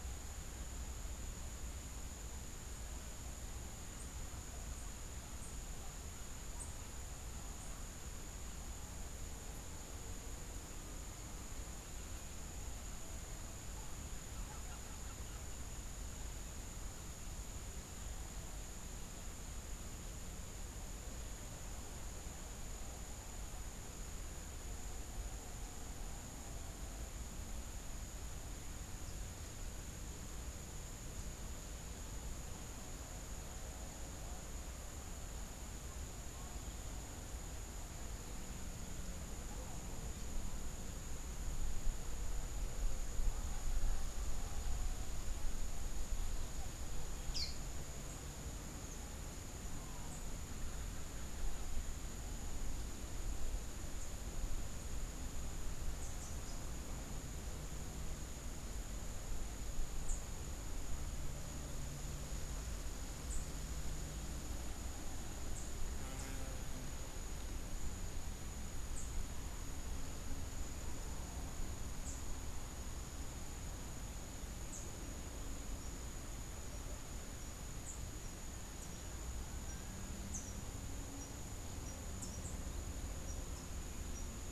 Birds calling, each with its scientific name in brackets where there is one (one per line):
Rufous-capped Warbler (Basileuterus rufifrons)
unidentified bird